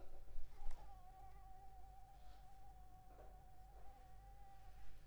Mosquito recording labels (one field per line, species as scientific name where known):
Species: Anopheles arabiensis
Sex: female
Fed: unfed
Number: one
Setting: cup